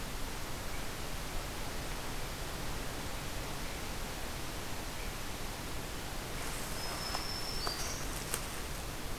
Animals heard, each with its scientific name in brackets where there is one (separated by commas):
Black-throated Green Warbler (Setophaga virens)